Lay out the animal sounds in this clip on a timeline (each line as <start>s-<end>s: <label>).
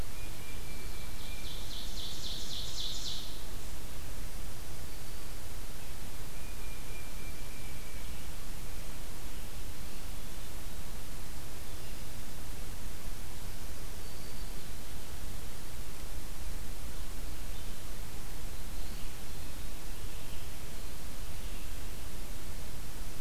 0.0s-1.6s: Tufted Titmouse (Baeolophus bicolor)
0.6s-3.4s: Ovenbird (Seiurus aurocapilla)
6.2s-8.3s: Tufted Titmouse (Baeolophus bicolor)
13.9s-14.6s: Black-throated Green Warbler (Setophaga virens)